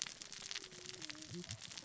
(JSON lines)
{"label": "biophony, cascading saw", "recorder": "SoundTrap 600 or HydroMoth"}